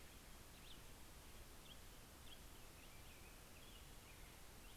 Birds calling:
Black-headed Grosbeak (Pheucticus melanocephalus)
American Robin (Turdus migratorius)

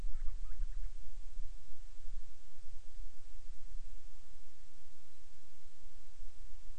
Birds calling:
Band-rumped Storm-Petrel (Hydrobates castro)

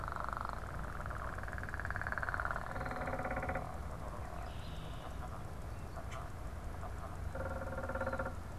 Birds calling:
unidentified bird
Red-winged Blackbird (Agelaius phoeniceus)

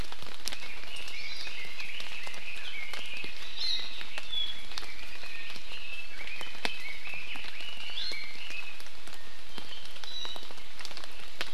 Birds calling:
Iiwi (Drepanis coccinea)
Red-billed Leiothrix (Leiothrix lutea)
Hawaii Amakihi (Chlorodrepanis virens)

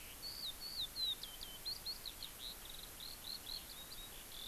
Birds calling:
Eurasian Skylark (Alauda arvensis)

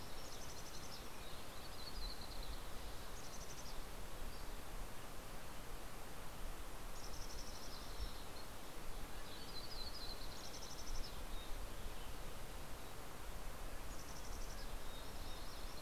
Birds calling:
Yellow-rumped Warbler (Setophaga coronata)
Mountain Quail (Oreortyx pictus)
Pacific-slope Flycatcher (Empidonax difficilis)
Mountain Chickadee (Poecile gambeli)

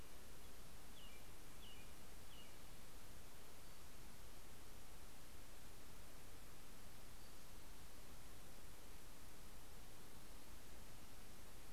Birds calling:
Pacific-slope Flycatcher (Empidonax difficilis)
American Robin (Turdus migratorius)

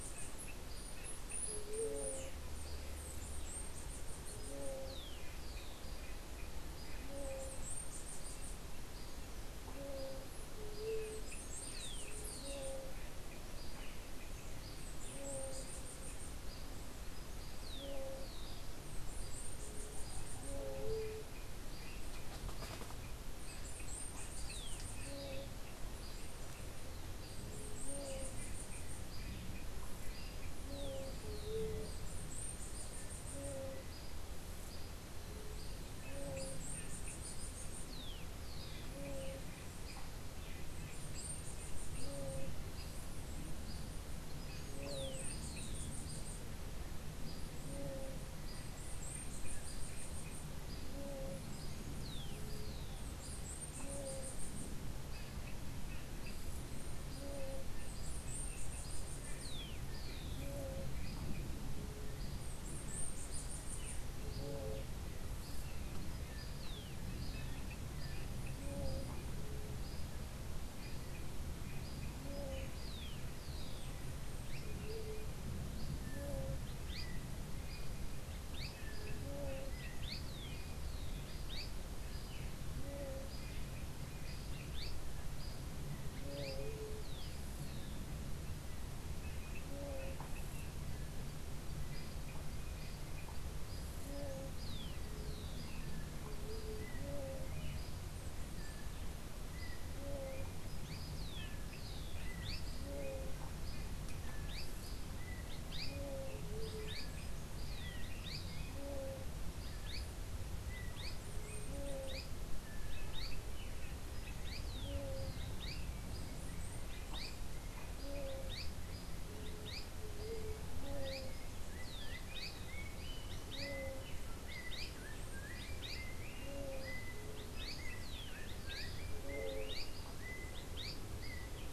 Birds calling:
Chestnut-capped Brushfinch (Arremon brunneinucha)
Rufous-collared Sparrow (Zonotrichia capensis)
unidentified bird
Yellow-backed Oriole (Icterus chrysater)
Azara's Spinetail (Synallaxis azarae)

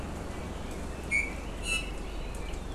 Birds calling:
Iiwi (Drepanis coccinea)

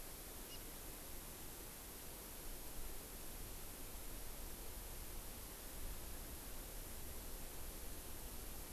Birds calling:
Hawaii Amakihi (Chlorodrepanis virens)

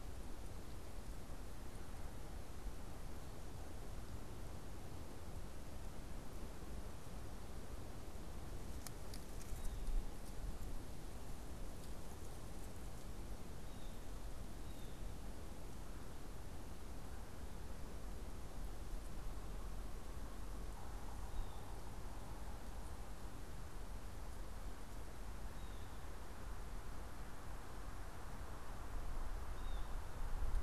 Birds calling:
Blue Jay (Cyanocitta cristata)

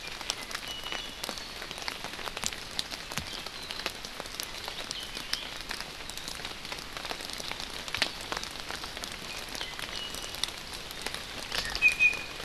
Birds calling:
Iiwi (Drepanis coccinea)

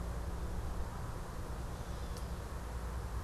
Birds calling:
Gray Catbird (Dumetella carolinensis)

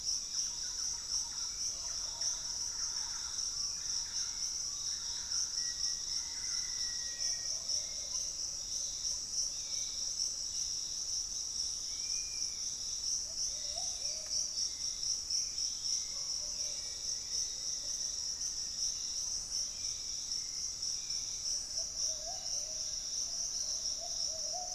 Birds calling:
Thrush-like Wren (Campylorhynchus turdinus)
Lemon-throated Barbet (Eubucco richardsoni)
Dusky-capped Flycatcher (Myiarchus tuberculifer)
Piratic Flycatcher (Legatus leucophaius)
Hauxwell's Thrush (Turdus hauxwelli)
Fasciated Antshrike (Cymbilaimus lineatus)
Black-faced Antthrush (Formicarius analis)

